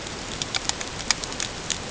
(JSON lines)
{"label": "ambient", "recorder": "HydroMoth"}